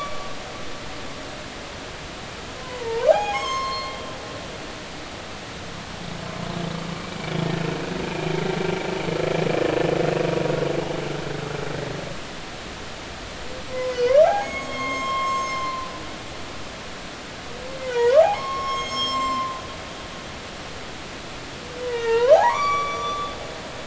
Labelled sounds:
2.6	4.0	humpback whale, 0.80 to 7.7 kHz
8.0	8.3	humpback whale, 2.4 to 2.5 kHz
13.7	15.9	humpback whale, 0.80 to 7.7 kHz
17.8	19.6	humpback whale, 0.86 to 7.6 kHz
21.8	23.4	humpback whale, 0.80 to 8.0 kHz

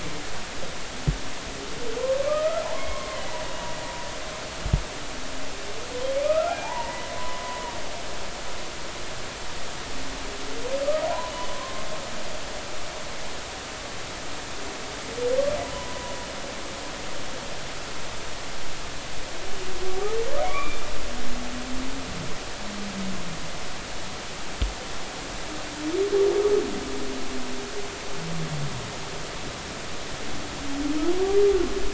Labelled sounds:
2.3	3.2	humpback whale, 0.80 to 2.2 kHz
6.2	7.4	humpback whale, 0.80 to 2.5 kHz
11.0	11.9	humpback whale, 0.80 to 3.0 kHz
15.7	16.1	humpback whale, 0.90 to 1.1 kHz
20.4	20.8	humpback whale, 1.1 to 2.5 kHz

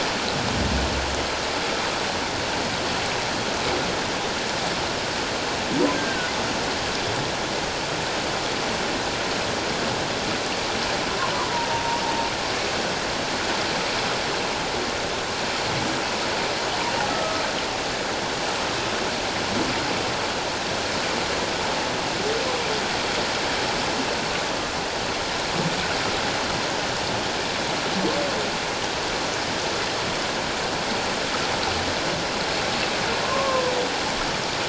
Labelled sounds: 6.0	6.3	humpback whale, 1.4 to 1.7 kHz
11.7	12.0	humpback whale, 0.88 to 1.0 kHz
17.1	17.4	humpback whale, 1.2 to 1.3 kHz
33.2	33.6	humpback whale, 0.97 to 1.2 kHz

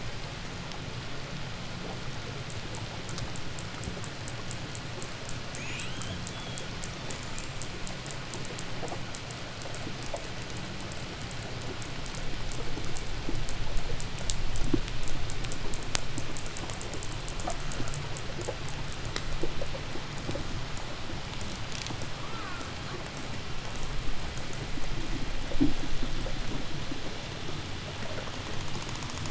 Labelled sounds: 5.2	7.8	killer whale, 1.6 to 4.3 kHz
22.0	23.1	killer whale, 0.81 to 2.8 kHz

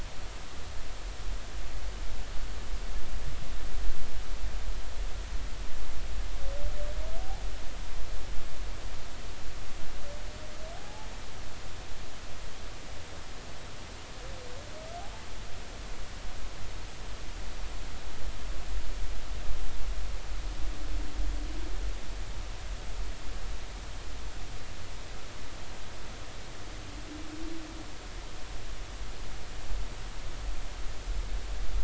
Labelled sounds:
10.8	11.1	humpback whale, 0.80 to 0.93 kHz

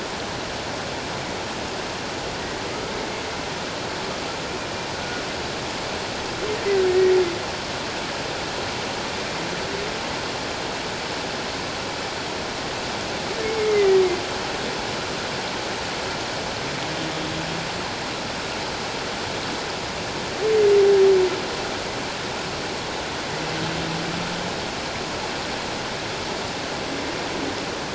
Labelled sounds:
4.9	5.2	humpback whale, 1.4 to 1.5 kHz
6.8	7.1	humpback whale, 1.8 to 1.9 kHz
13.4	14.0	humpback whale, 1.9 to 2.2 kHz

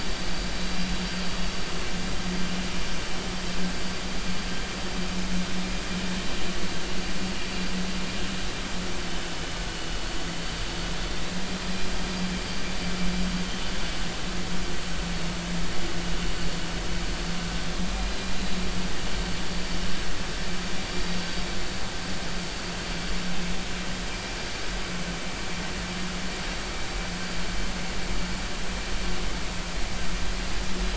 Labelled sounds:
10.4	10.7	vessel noise, 4.5 to 4.8 kHz
12.4	12.6	vessel noise, 4.6 to 4.7 kHz
18.1	18.3	vessel noise, 3.9 to 4.1 kHz

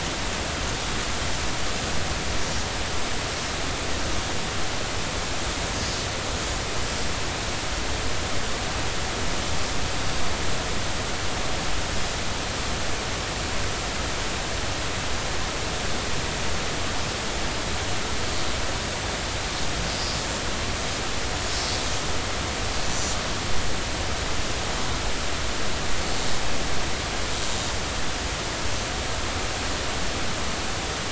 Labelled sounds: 22.9	23.1	Risso's dolphin, 5.8 to 6.1 kHz

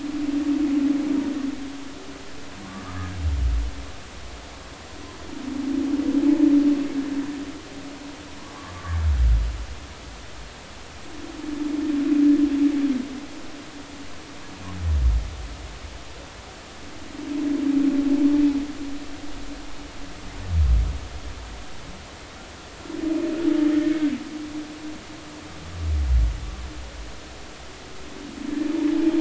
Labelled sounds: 2.6	3.2	humpback whale, 1.1 to 1.8 kHz
23.9	24.1	humpback whale, 1.5 to 1.6 kHz

